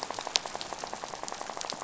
{"label": "biophony, rattle", "recorder": "SoundTrap 500"}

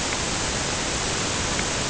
{"label": "ambient", "recorder": "HydroMoth"}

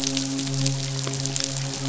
{"label": "biophony, midshipman", "recorder": "SoundTrap 500"}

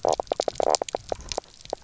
{"label": "biophony, knock croak", "recorder": "SoundTrap 300"}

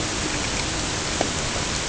{"label": "ambient", "recorder": "HydroMoth"}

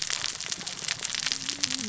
{"label": "biophony, cascading saw", "recorder": "SoundTrap 600 or HydroMoth"}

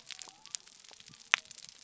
{"label": "biophony", "recorder": "SoundTrap 300"}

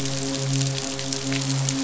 {"label": "biophony, midshipman", "recorder": "SoundTrap 500"}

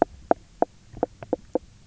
{"label": "biophony, knock croak", "recorder": "SoundTrap 300"}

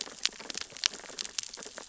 {"label": "biophony, sea urchins (Echinidae)", "recorder": "SoundTrap 600 or HydroMoth"}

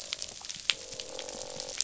{"label": "biophony, croak", "recorder": "SoundTrap 500"}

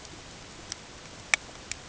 {"label": "ambient", "recorder": "HydroMoth"}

